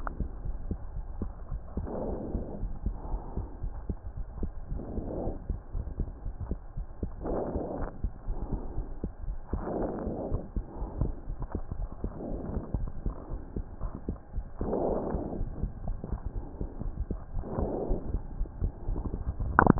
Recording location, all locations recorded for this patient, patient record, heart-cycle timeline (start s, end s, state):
aortic valve (AV)
aortic valve (AV)+pulmonary valve (PV)+tricuspid valve (TV)+mitral valve (MV)
#Age: nan
#Sex: Male
#Height: 123.0 cm
#Weight: 29.2 kg
#Pregnancy status: False
#Murmur: Absent
#Murmur locations: nan
#Most audible location: nan
#Systolic murmur timing: nan
#Systolic murmur shape: nan
#Systolic murmur grading: nan
#Systolic murmur pitch: nan
#Systolic murmur quality: nan
#Diastolic murmur timing: nan
#Diastolic murmur shape: nan
#Diastolic murmur grading: nan
#Diastolic murmur pitch: nan
#Diastolic murmur quality: nan
#Outcome: Normal
#Campaign: 2015 screening campaign
0.00	6.06	unannotated
6.06	6.24	diastole
6.24	6.34	S1
6.34	6.48	systole
6.48	6.58	S2
6.58	6.78	diastole
6.78	6.86	S1
6.86	7.02	systole
7.02	7.10	S2
7.10	7.24	diastole
7.24	7.38	S1
7.38	7.52	systole
7.52	7.61	S2
7.61	7.80	diastole
7.80	7.90	S1
7.90	8.00	systole
8.00	8.12	S2
8.12	8.28	diastole
8.28	8.38	S1
8.38	8.50	systole
8.50	8.62	S2
8.62	8.76	diastole
8.76	8.86	S1
8.86	8.98	systole
8.98	9.10	S2
9.10	9.24	diastole
9.24	9.38	S1
9.38	9.54	systole
9.54	9.64	S2
9.64	9.80	diastole
9.80	9.94	S1
9.94	10.04	systole
10.04	10.18	S2
10.18	10.30	diastole
10.30	10.44	S1
10.44	10.54	systole
10.54	10.64	S2
10.64	10.80	diastole
10.80	10.90	S1
10.90	10.98	systole
10.98	11.14	S2
11.14	11.28	diastole
11.28	11.36	S1
11.36	11.48	systole
11.48	11.62	S2
11.62	11.78	diastole
11.78	11.88	S1
11.88	12.02	systole
12.02	12.12	S2
12.12	12.26	diastole
12.26	12.40	S1
12.40	12.52	systole
12.52	12.64	S2
12.64	12.78	diastole
12.78	12.90	S1
12.90	13.04	systole
13.04	13.16	S2
13.16	13.31	diastole
13.31	13.40	S1
13.40	13.56	systole
13.56	13.66	S2
13.66	13.82	diastole
13.82	13.92	S1
13.92	14.06	systole
14.06	14.18	S2
14.18	14.36	diastole
14.36	14.46	S1
14.46	14.60	systole
14.60	14.72	S2
14.72	14.86	diastole
14.86	15.02	S1
15.02	15.12	systole
15.12	15.22	S2
15.22	15.36	diastole
15.36	15.52	S1
15.52	15.62	systole
15.62	15.72	S2
15.72	15.86	diastole
15.86	16.00	S1
16.00	16.12	systole
16.12	16.22	S2
16.22	16.34	diastole
16.34	16.46	S1
16.46	16.58	systole
16.58	16.70	S2
16.70	16.82	diastole
16.82	16.94	S1
16.94	17.08	systole
17.08	17.20	S2
17.20	17.34	diastole
17.34	17.44	S1
17.44	17.56	systole
17.56	17.70	S2
17.70	17.86	diastole
17.86	18.00	S1
18.00	18.10	systole
18.10	18.24	S2
18.24	18.36	diastole
18.36	18.50	S1
18.50	18.60	systole
18.60	18.74	S2
18.74	18.87	diastole
18.87	19.79	unannotated